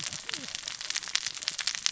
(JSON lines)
{"label": "biophony, cascading saw", "recorder": "SoundTrap 600 or HydroMoth"}